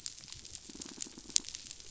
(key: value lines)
label: biophony, pulse
recorder: SoundTrap 500